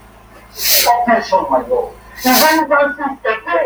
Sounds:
Sniff